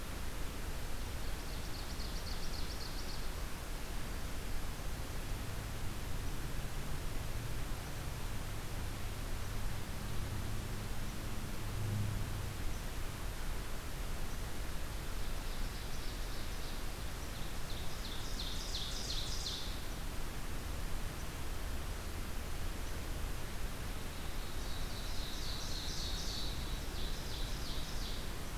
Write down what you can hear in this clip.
Ovenbird